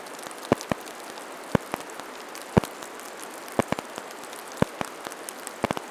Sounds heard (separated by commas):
rain, Golden-crowned Kinglet song